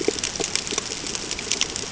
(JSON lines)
{"label": "ambient", "recorder": "HydroMoth"}